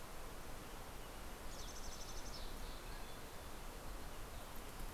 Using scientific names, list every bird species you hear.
Piranga ludoviciana, Poecile gambeli